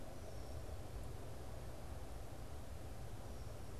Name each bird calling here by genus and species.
Agelaius phoeniceus